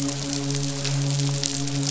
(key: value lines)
label: biophony, midshipman
recorder: SoundTrap 500